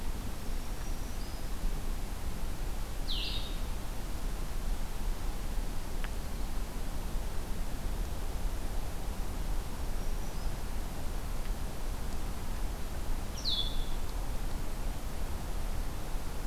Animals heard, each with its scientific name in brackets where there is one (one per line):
Black-throated Green Warbler (Setophaga virens)
Blue-headed Vireo (Vireo solitarius)